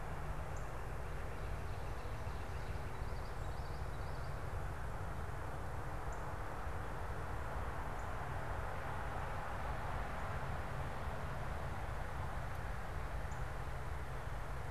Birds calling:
Common Yellowthroat (Geothlypis trichas)
Ovenbird (Seiurus aurocapilla)
Northern Cardinal (Cardinalis cardinalis)
Northern Flicker (Colaptes auratus)

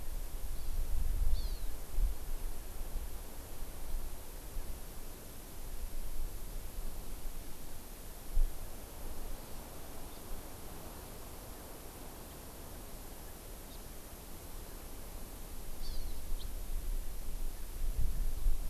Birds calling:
Hawaii Amakihi (Chlorodrepanis virens)
House Finch (Haemorhous mexicanus)

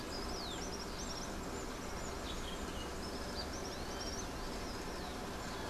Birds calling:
Common Tody-Flycatcher (Todirostrum cinereum)

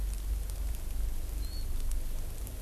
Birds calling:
Warbling White-eye (Zosterops japonicus)

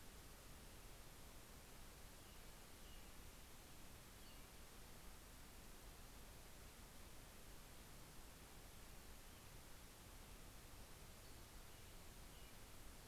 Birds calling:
American Robin (Turdus migratorius)
Pacific-slope Flycatcher (Empidonax difficilis)

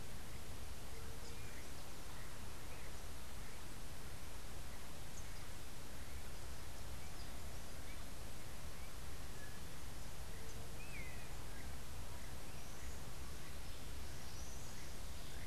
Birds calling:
Long-tailed Manakin (Chiroxiphia linearis)

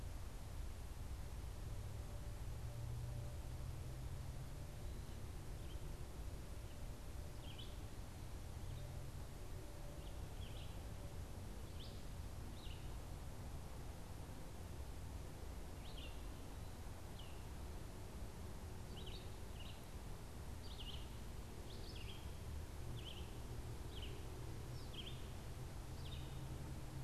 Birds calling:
Red-eyed Vireo (Vireo olivaceus)

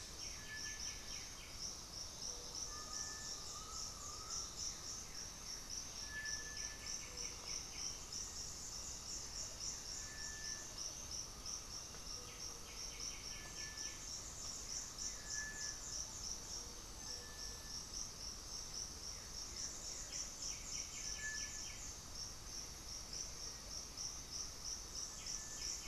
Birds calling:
Blue-gray Saltator (Saltator coerulescens)
Amazonian Motmot (Momotus momota)
Cinereous Tinamou (Crypturellus cinereus)
unidentified bird
Black-faced Antthrush (Formicarius analis)
Undulated Tinamou (Crypturellus undulatus)
White-winged Becard (Pachyramphus polychopterus)
Gray-fronted Dove (Leptotila rufaxilla)

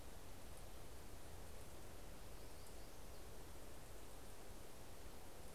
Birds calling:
Yellow-rumped Warbler (Setophaga coronata)

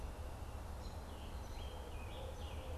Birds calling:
Scarlet Tanager (Piranga olivacea)
Barred Owl (Strix varia)

